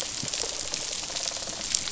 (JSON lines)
{"label": "biophony, rattle response", "recorder": "SoundTrap 500"}